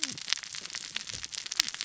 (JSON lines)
{"label": "biophony, cascading saw", "recorder": "SoundTrap 600 or HydroMoth"}